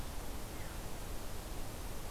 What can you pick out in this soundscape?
Veery